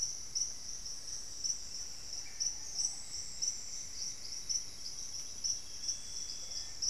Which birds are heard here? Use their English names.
Black-faced Antthrush, Little Tinamou, Ruddy Pigeon, Plumbeous Antbird, Hauxwell's Thrush